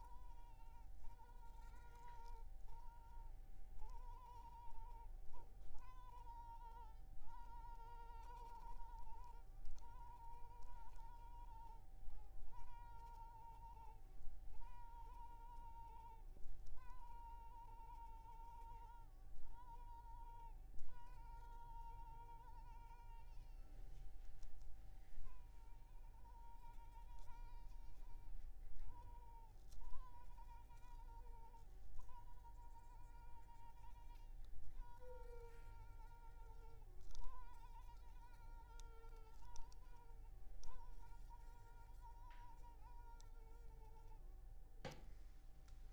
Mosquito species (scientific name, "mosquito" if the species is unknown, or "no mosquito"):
Culex pipiens complex